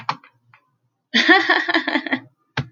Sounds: Laughter